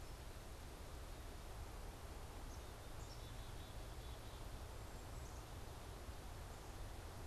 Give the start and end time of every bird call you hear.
2.4s-4.5s: Black-capped Chickadee (Poecile atricapillus)

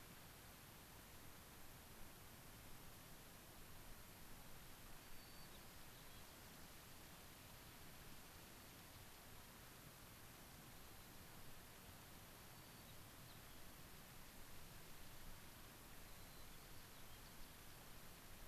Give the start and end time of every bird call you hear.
5.0s-6.6s: White-crowned Sparrow (Zonotrichia leucophrys)
10.8s-11.2s: White-crowned Sparrow (Zonotrichia leucophrys)
12.5s-13.7s: White-crowned Sparrow (Zonotrichia leucophrys)
16.1s-17.5s: White-crowned Sparrow (Zonotrichia leucophrys)

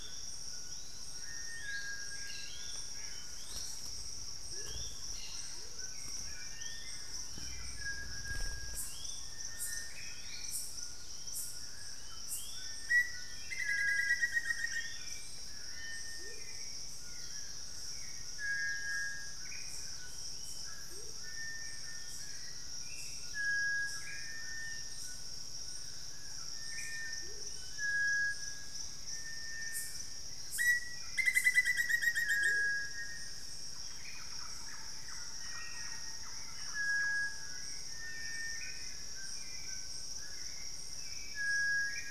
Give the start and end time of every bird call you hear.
0.0s-6.0s: Amazonian Motmot (Momotus momota)
0.0s-15.2s: unidentified bird
0.0s-42.1s: Hauxwell's Thrush (Turdus hauxwelli)
0.0s-42.1s: White-throated Toucan (Ramphastos tucanus)
4.9s-5.7s: Cobalt-winged Parakeet (Brotogeris cyanoptera)
9.3s-10.3s: Cinereous Tinamou (Crypturellus cinereus)
9.8s-10.6s: Black-faced Antthrush (Formicarius analis)
12.6s-15.0s: Black-faced Antthrush (Formicarius analis)
14.6s-15.4s: Amazonian Motmot (Momotus momota)
16.0s-21.2s: Amazonian Motmot (Momotus momota)
19.3s-19.8s: Black-faced Antthrush (Formicarius analis)
19.9s-20.8s: Purple-throated Euphonia (Euphonia chlorotica)
23.9s-34.3s: Black-faced Antthrush (Formicarius analis)
27.0s-27.6s: Amazonian Motmot (Momotus momota)
27.4s-28.3s: Bluish-fronted Jacamar (Galbula cyanescens)
32.2s-33.0s: Amazonian Motmot (Momotus momota)
33.7s-37.5s: Thrush-like Wren (Campylorhynchus turdinus)
35.1s-36.4s: Cinereous Tinamou (Crypturellus cinereus)
37.7s-38.8s: Cinereous Tinamou (Crypturellus cinereus)
38.3s-38.9s: Black-faced Antthrush (Formicarius analis)

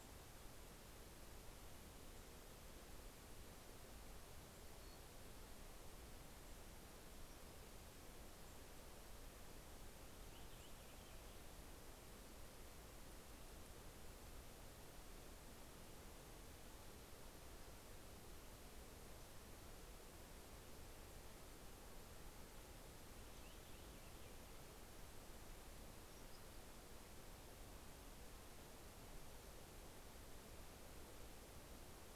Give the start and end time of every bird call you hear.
9.3s-12.3s: Purple Finch (Haemorhous purpureus)
22.4s-25.4s: Purple Finch (Haemorhous purpureus)

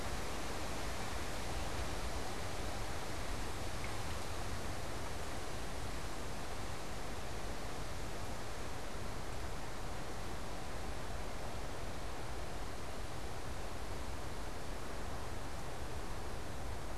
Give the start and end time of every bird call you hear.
1.5s-5.5s: American Robin (Turdus migratorius)

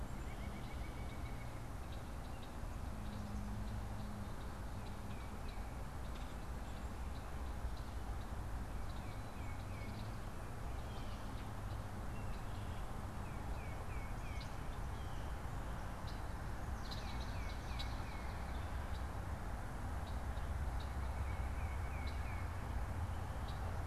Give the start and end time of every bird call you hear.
0.0s-1.7s: White-breasted Nuthatch (Sitta carolinensis)
1.9s-23.8s: unidentified bird
8.8s-10.1s: Tufted Titmouse (Baeolophus bicolor)
10.6s-11.3s: Blue Jay (Cyanocitta cristata)
13.2s-14.7s: Tufted Titmouse (Baeolophus bicolor)
14.7s-15.6s: Blue Jay (Cyanocitta cristata)
16.6s-18.8s: Swamp Sparrow (Melospiza georgiana)
20.3s-22.2s: White-breasted Nuthatch (Sitta carolinensis)
21.1s-22.6s: Tufted Titmouse (Baeolophus bicolor)

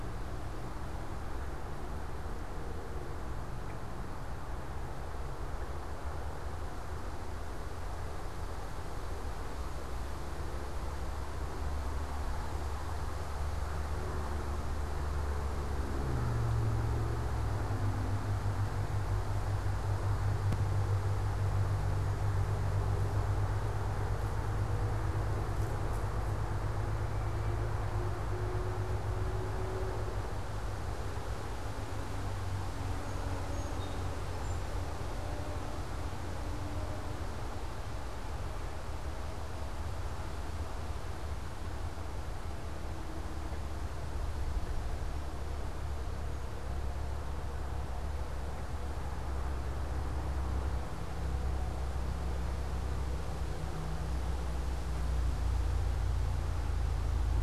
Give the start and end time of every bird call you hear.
32.6s-34.8s: Song Sparrow (Melospiza melodia)

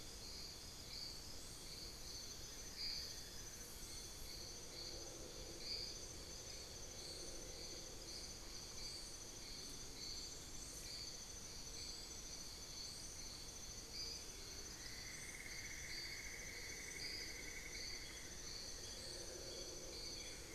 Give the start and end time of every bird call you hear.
2.1s-4.0s: Buff-throated Woodcreeper (Xiphorhynchus guttatus)
8.1s-14.4s: Dusky-throated Antshrike (Thamnomanes ardesiacus)
14.7s-18.6s: White-crested Spadebill (Platyrinchus platyrhynchos)
18.3s-20.5s: Amazonian Barred-Woodcreeper (Dendrocolaptes certhia)
19.9s-20.5s: Buff-throated Woodcreeper (Xiphorhynchus guttatus)

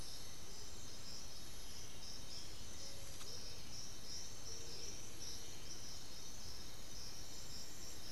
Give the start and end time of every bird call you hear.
0.0s-3.9s: Black-billed Thrush (Turdus ignobilis)

